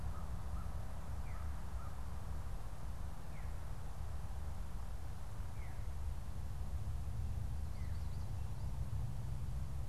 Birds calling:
American Crow (Corvus brachyrhynchos), Veery (Catharus fuscescens)

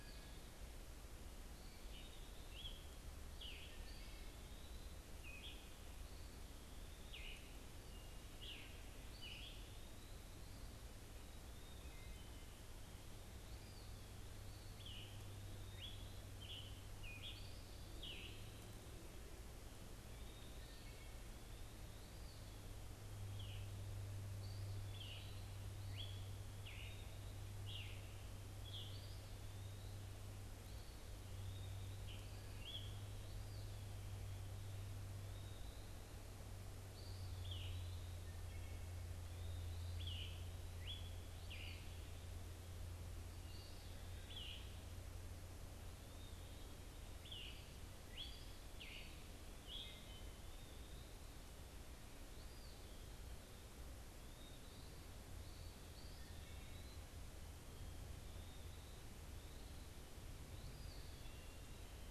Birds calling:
Wood Thrush (Hylocichla mustelina), unidentified bird, Eastern Wood-Pewee (Contopus virens), Scarlet Tanager (Piranga olivacea)

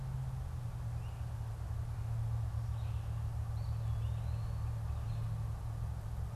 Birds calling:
Eastern Wood-Pewee (Contopus virens)

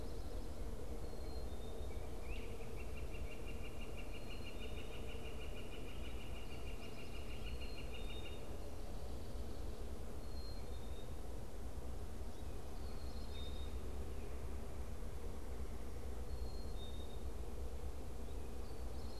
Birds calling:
Northern Flicker (Colaptes auratus), Great Crested Flycatcher (Myiarchus crinitus), Black-capped Chickadee (Poecile atricapillus)

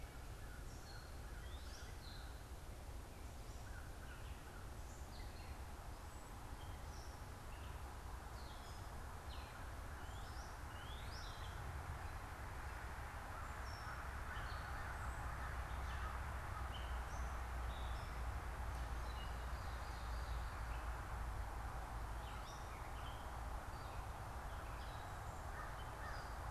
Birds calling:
Ovenbird (Seiurus aurocapilla), Gray Catbird (Dumetella carolinensis), Northern Cardinal (Cardinalis cardinalis), American Crow (Corvus brachyrhynchos)

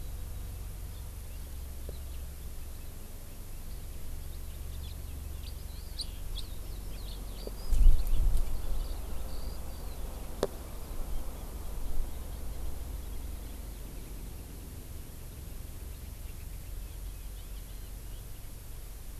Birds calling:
Eurasian Skylark (Alauda arvensis), House Finch (Haemorhous mexicanus)

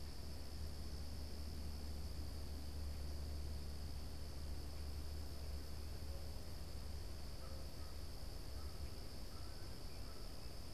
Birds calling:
American Crow (Corvus brachyrhynchos)

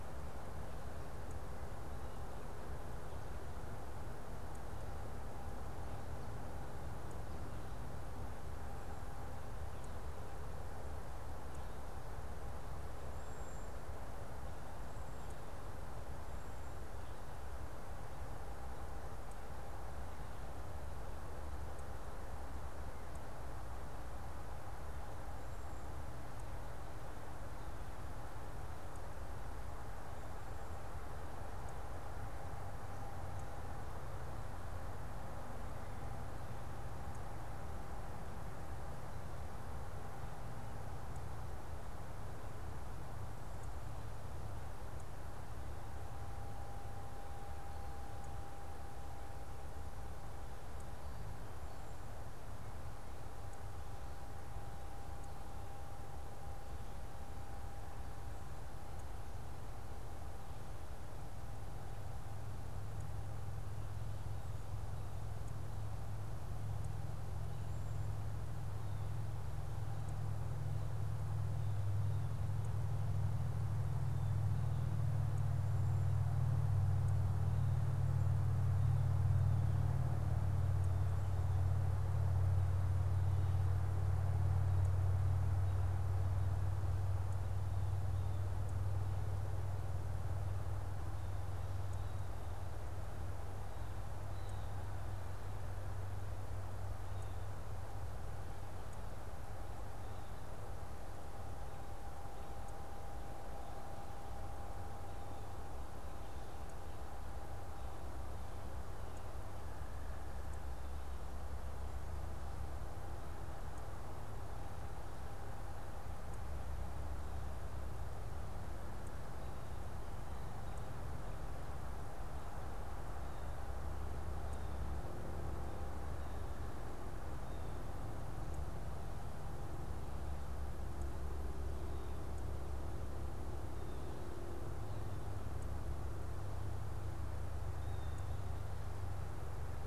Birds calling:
unidentified bird

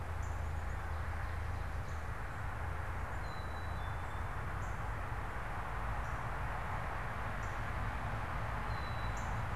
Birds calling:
Northern Cardinal (Cardinalis cardinalis), Black-capped Chickadee (Poecile atricapillus)

